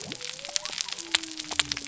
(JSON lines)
{"label": "biophony", "recorder": "SoundTrap 300"}